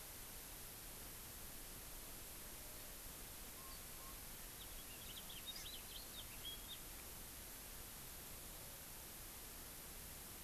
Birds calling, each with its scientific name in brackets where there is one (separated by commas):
House Finch (Haemorhous mexicanus), Hawaii Amakihi (Chlorodrepanis virens)